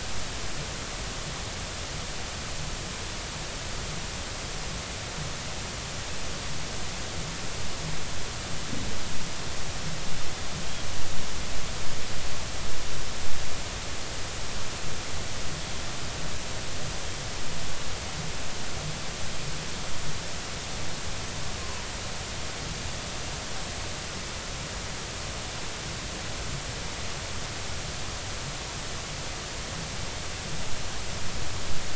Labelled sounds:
21.6	21.9	humpback whale, 0.93 to 1.1 kHz

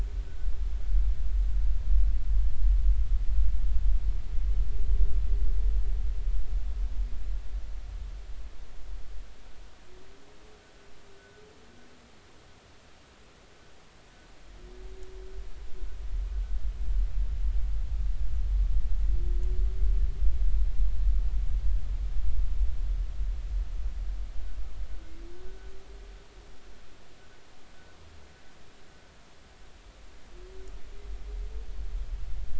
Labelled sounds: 11.2	11.4	humpback whale, 1.4 to 1.6 kHz

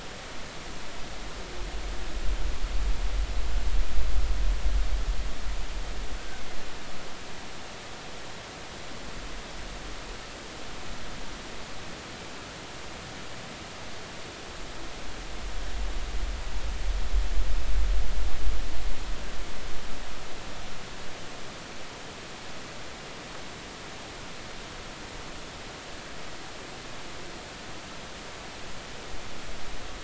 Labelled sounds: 6.2	6.4	killer whale, Bigg's (transient), 1.4 to 1.6 kHz

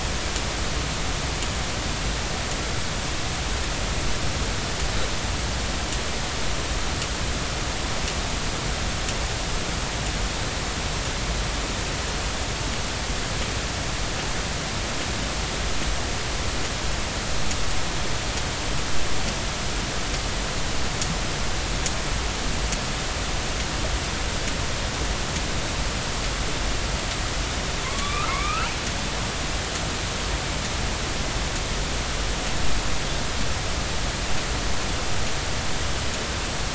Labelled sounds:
27.8	28.7	killer whale, northern resident, A clan, AB subclan, call N16, 0.99 to 3.0 kHz

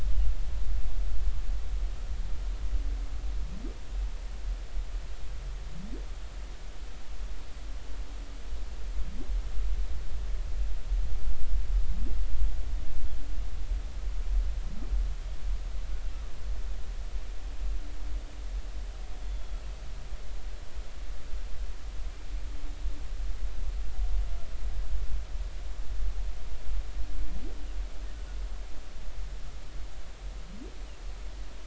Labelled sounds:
19.3	19.6	humpback whale, 3.3 to 3.5 kHz

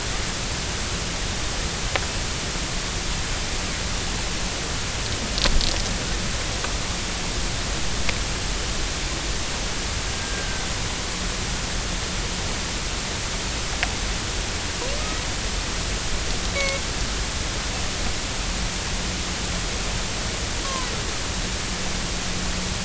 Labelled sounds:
10.2	10.6	Risso's dolphin, 1.5 to 1.6 kHz
16.5	16.8	Risso's dolphin, 1.1 to 2.3 kHz
20.6	20.9	Risso's dolphin, 0.96 to 1.2 kHz

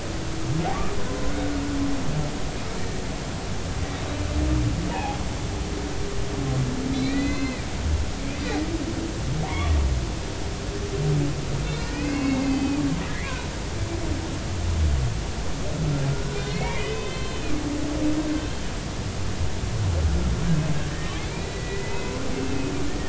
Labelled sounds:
4.9	5.2	humpback whale, 0.80 to 1.0 kHz
6.9	7.6	humpback whale, 1.5 to 4.3 kHz
9.5	9.8	humpback whale, 0.90 to 1.2 kHz
11.6	13.3	humpback whale, 1.4 to 4.7 kHz
16.1	17.5	humpback whale, 1.4 to 4.2 kHz
20.7	22.7	humpback whale, 1.5 to 2.7 kHz

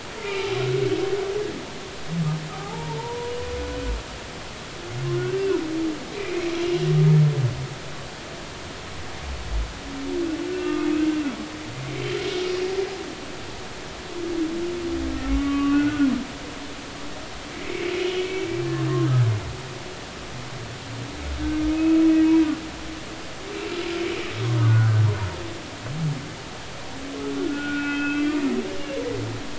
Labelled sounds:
2.5	3.3	humpback whale, 0.80 to 1.3 kHz
5.1	6.4	humpback whale, 1.4 to 2.6 kHz
10.5	10.9	humpback whale, 1.2 to 2.8 kHz
15.3	16.1	humpback whale, 1.1 to 2.3 kHz
17.5	18.3	humpback whale, 2.0 to 3.0 kHz
21.7	22.0	humpback whale, 2.5 to 2.7 kHz
24.6	25.1	humpback whale, 1.3 to 1.6 kHz
25.4	25.7	humpback whale, 0.93 to 1.3 kHz
27.4	28.4	humpback whale, 1.4 to 2.8 kHz

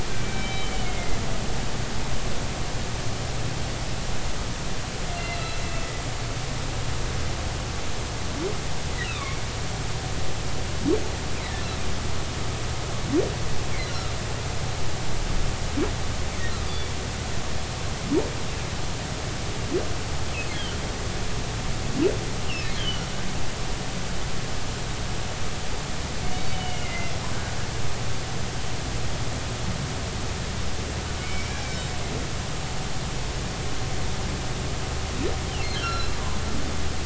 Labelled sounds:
0.2	1.2	humpback whale, 2.0 to 3.1 kHz
5.2	5.6	humpback whale, 2.6 to 4.1 kHz
9.0	9.4	humpback whale, 2.1 to 2.9 kHz
13.9	14.2	humpback whale, 1.2 to 1.5 kHz
16.6	16.9	humpback whale, 3.4 to 3.6 kHz
22.5	23.0	humpback whale, 2.5 to 3.4 kHz
26.5	27.1	humpback whale, 1.9 to 3.0 kHz
31.2	31.9	humpback whale, 2.1 to 3.9 kHz
35.7	36.1	humpback whale, 1.3 to 4.2 kHz

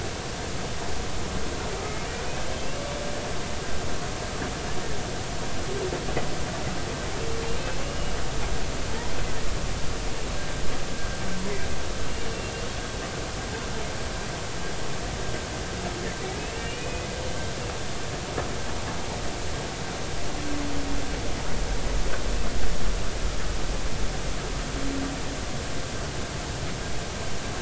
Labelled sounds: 7.6	8.1	humpback whale, 2.5 to 2.9 kHz
10.9	11.2	humpback whale, 1.5 to 1.7 kHz
12.3	12.5	humpback whale, 2.7 to 2.8 kHz
16.4	17.1	humpback whale, 2.3 to 2.9 kHz

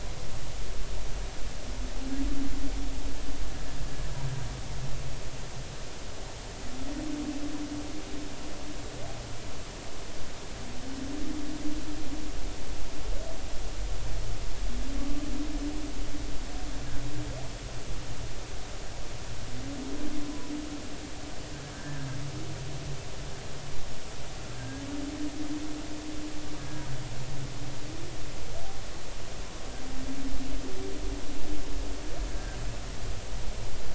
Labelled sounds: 15.0	15.2	humpback whale, 1.1 to 1.2 kHz
21.7	22.0	humpback whale, 1.5 to 1.8 kHz
24.5	24.8	humpback whale, 1.5 to 1.7 kHz
26.6	26.8	humpback whale, 1.6 to 1.7 kHz
32.3	32.6	humpback whale, 1.5 to 1.7 kHz

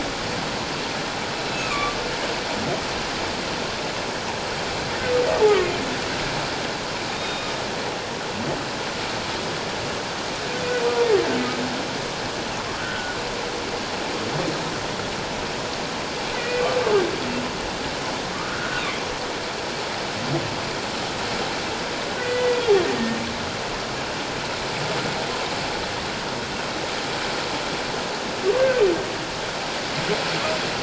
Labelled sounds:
1.5	2.0	humpback whale, 1.1 to 2.7 kHz
7.1	7.5	humpback whale, 2.4 to 3.8 kHz
12.8	13.2	humpback whale, 1.3 to 1.6 kHz
16.3	16.6	humpback whale, 1.9 to 2.5 kHz
18.5	18.8	humpback whale, 1.4 to 1.6 kHz
22.2	22.6	humpback whale, 1.4 to 2.0 kHz

